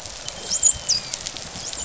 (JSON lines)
{"label": "biophony, dolphin", "recorder": "SoundTrap 500"}